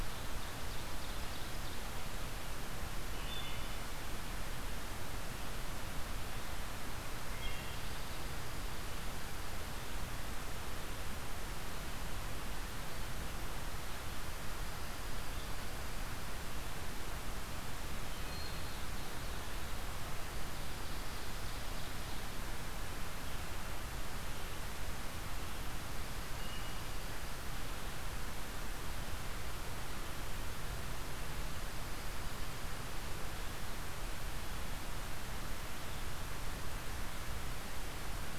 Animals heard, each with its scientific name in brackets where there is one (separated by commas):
Ovenbird (Seiurus aurocapilla), Wood Thrush (Hylocichla mustelina), Dark-eyed Junco (Junco hyemalis)